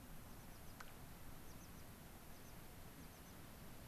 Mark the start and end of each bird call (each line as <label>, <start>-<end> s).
American Pipit (Anthus rubescens), 0.3-0.8 s
American Pipit (Anthus rubescens), 1.5-1.9 s
American Pipit (Anthus rubescens), 2.3-2.6 s
American Pipit (Anthus rubescens), 3.0-3.4 s